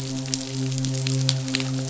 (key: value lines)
label: biophony, midshipman
recorder: SoundTrap 500